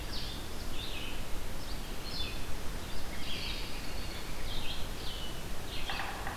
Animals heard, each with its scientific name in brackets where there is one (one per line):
American Robin (Turdus migratorius)
Yellow-bellied Sapsucker (Sphyrapicus varius)
Blue-headed Vireo (Vireo solitarius)
Red-eyed Vireo (Vireo olivaceus)